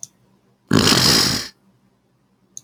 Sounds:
Sniff